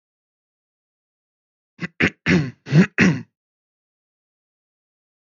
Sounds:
Throat clearing